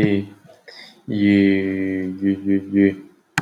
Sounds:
Cough